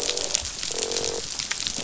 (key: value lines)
label: biophony, croak
recorder: SoundTrap 500